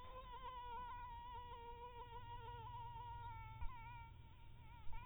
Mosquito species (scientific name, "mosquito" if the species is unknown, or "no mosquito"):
Anopheles maculatus